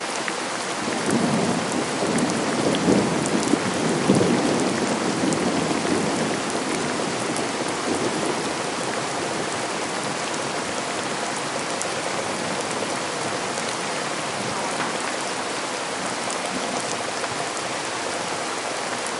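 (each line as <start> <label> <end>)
0.0 Steady, rhythmic patter of rain falling on a street. 19.2
1.0 A loud thunderstorm is occurring in the background. 8.1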